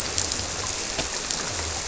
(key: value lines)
label: biophony
recorder: SoundTrap 300